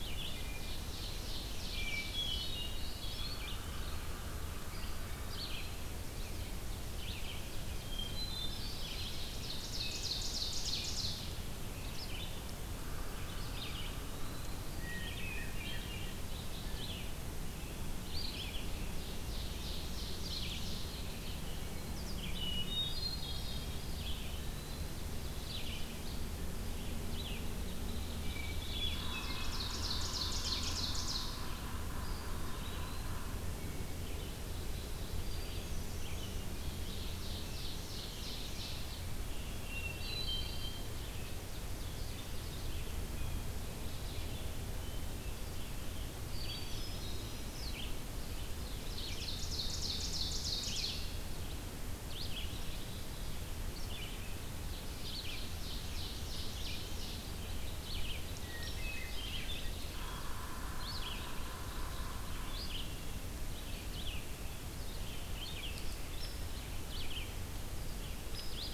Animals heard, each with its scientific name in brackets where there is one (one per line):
Red-eyed Vireo (Vireo olivaceus)
Eastern Wood-Pewee (Contopus virens)
Hermit Thrush (Catharus guttatus)
Ovenbird (Seiurus aurocapilla)
Yellow-bellied Sapsucker (Sphyrapicus varius)